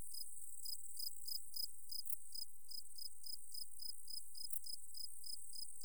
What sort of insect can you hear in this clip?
orthopteran